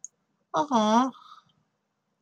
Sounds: Sigh